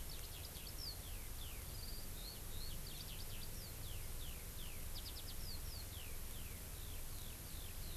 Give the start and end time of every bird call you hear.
0.0s-8.0s: Eurasian Skylark (Alauda arvensis)

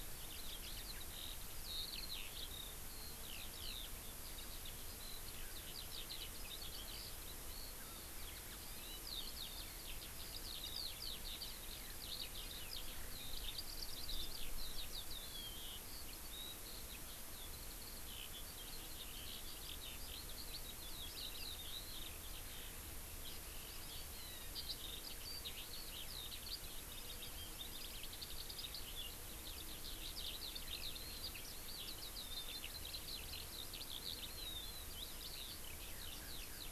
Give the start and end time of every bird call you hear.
0.0s-36.7s: Eurasian Skylark (Alauda arvensis)

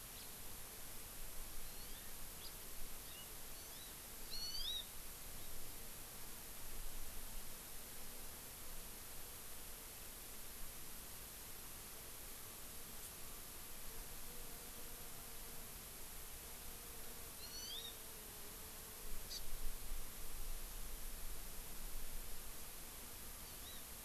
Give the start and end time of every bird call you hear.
0.1s-0.3s: House Finch (Haemorhous mexicanus)
1.6s-2.1s: Hawaii Amakihi (Chlorodrepanis virens)
2.3s-2.5s: House Finch (Haemorhous mexicanus)
3.0s-3.2s: Hawaii Amakihi (Chlorodrepanis virens)
3.5s-3.9s: Hawaii Amakihi (Chlorodrepanis virens)
4.2s-4.8s: Hawaii Amakihi (Chlorodrepanis virens)
17.3s-17.9s: Hawaii Amakihi (Chlorodrepanis virens)
19.3s-19.4s: Hawaii Amakihi (Chlorodrepanis virens)
23.4s-23.8s: Hawaii Amakihi (Chlorodrepanis virens)

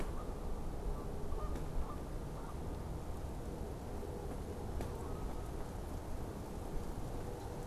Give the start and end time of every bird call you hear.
0.0s-5.7s: Canada Goose (Branta canadensis)

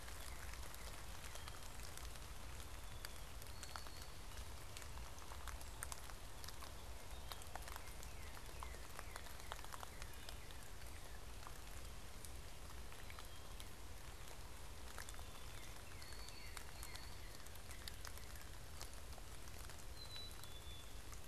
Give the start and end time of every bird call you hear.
2.4s-4.4s: White-throated Sparrow (Zonotrichia albicollis)
7.8s-11.4s: Northern Cardinal (Cardinalis cardinalis)
14.7s-18.6s: Northern Cardinal (Cardinalis cardinalis)
14.8s-17.2s: White-throated Sparrow (Zonotrichia albicollis)
19.7s-21.2s: Black-capped Chickadee (Poecile atricapillus)

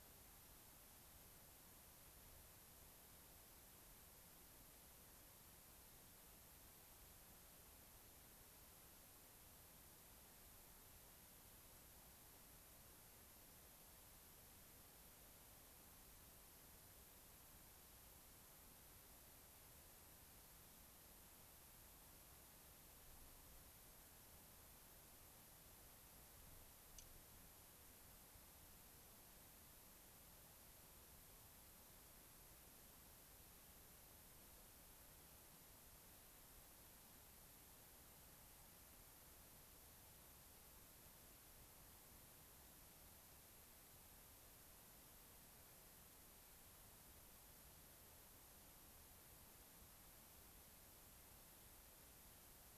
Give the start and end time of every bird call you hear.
26.9s-27.0s: Dark-eyed Junco (Junco hyemalis)

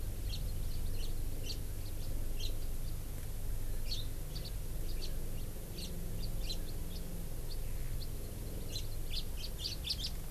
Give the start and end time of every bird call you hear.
0.0s-1.3s: Hawaii Amakihi (Chlorodrepanis virens)
0.3s-0.4s: House Finch (Haemorhous mexicanus)
1.0s-1.1s: House Finch (Haemorhous mexicanus)
1.4s-1.6s: House Finch (Haemorhous mexicanus)
2.4s-2.5s: House Finch (Haemorhous mexicanus)
4.3s-4.5s: House Finch (Haemorhous mexicanus)
5.0s-5.1s: House Finch (Haemorhous mexicanus)
5.8s-5.9s: House Finch (Haemorhous mexicanus)
6.4s-6.6s: House Finch (Haemorhous mexicanus)
6.9s-7.0s: House Finch (Haemorhous mexicanus)
8.7s-8.8s: House Finch (Haemorhous mexicanus)
9.1s-10.2s: House Finch (Haemorhous mexicanus)

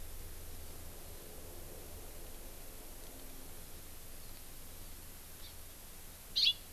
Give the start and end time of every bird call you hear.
5.5s-5.5s: Hawaii Amakihi (Chlorodrepanis virens)
6.3s-6.5s: Hawaii Amakihi (Chlorodrepanis virens)

